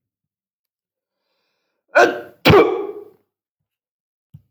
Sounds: Sneeze